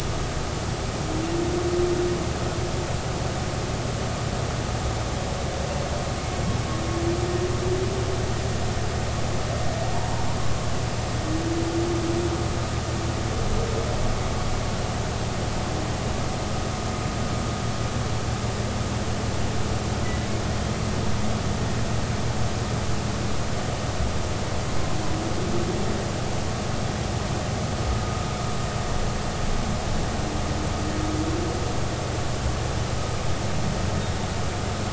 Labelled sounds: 9.9	10.2	humpback whale, 0.86 to 1.1 kHz

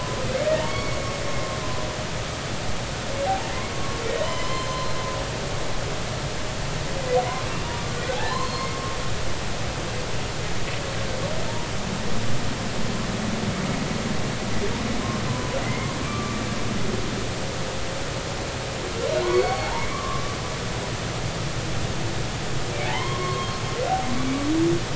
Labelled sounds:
0.6	1.0	humpback whale, 1.1 to 2.3 kHz
3.2	3.5	humpback whale, 0.80 to 0.96 kHz
4.2	4.9	humpback whale, 0.90 to 4.3 kHz
7.5	8.7	humpback whale, 0.80 to 4.4 kHz
15.3	16.4	humpback whale, 0.96 to 2.2 kHz
19.2	20.2	humpback whale, 0.80 to 4.5 kHz
22.9	23.5	humpback whale, 0.80 to 3.3 kHz

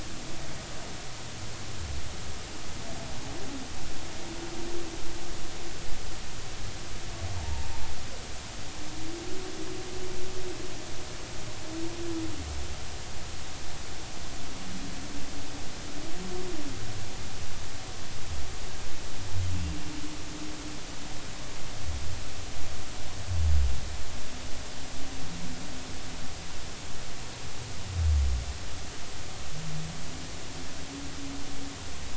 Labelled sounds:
7.4	7.7	humpback whale, 0.80 to 0.99 kHz

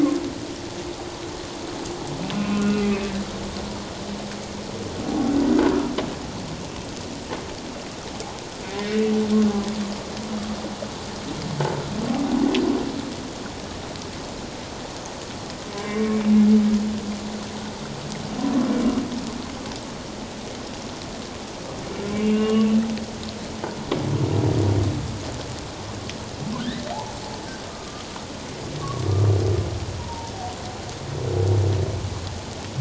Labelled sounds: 2.5	3.1	humpback whale, 1.4 to 2.7 kHz
8.8	9.1	humpback whale, 1.8 to 2.0 kHz
15.7	16.3	humpback whale, 0.97 to 2.4 kHz
22.2	22.7	humpback whale, 1.1 to 2.9 kHz
26.6	26.9	humpback whale, 1.4 to 2.0 kHz
27.7	28.0	humpback whale, 1.1 to 1.3 kHz
30.0	30.3	humpback whale, 0.84 to 1.0 kHz

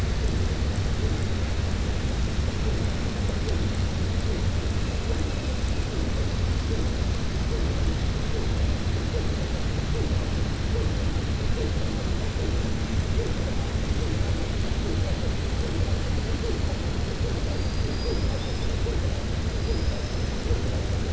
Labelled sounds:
17.5	18.7	killer whale, southern resident, 3.5 to 5.3 kHz

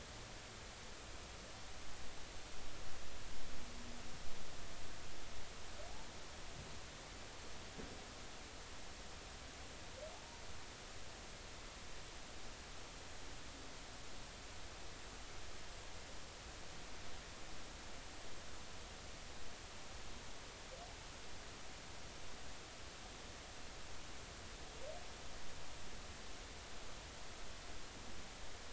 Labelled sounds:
10.1	10.4	humpback whale, 0.80 to 1.0 kHz

